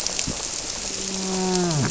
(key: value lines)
label: biophony, grouper
recorder: SoundTrap 300